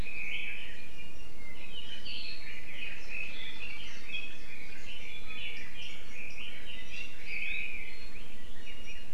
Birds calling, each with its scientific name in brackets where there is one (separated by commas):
Iiwi (Drepanis coccinea), Red-billed Leiothrix (Leiothrix lutea)